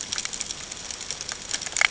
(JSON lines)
{"label": "ambient", "recorder": "HydroMoth"}